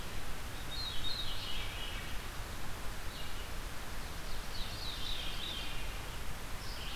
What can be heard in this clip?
Veery, Red-eyed Vireo